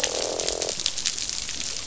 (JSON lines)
{"label": "biophony, croak", "recorder": "SoundTrap 500"}